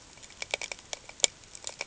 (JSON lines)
{"label": "ambient", "recorder": "HydroMoth"}